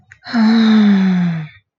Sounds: Sigh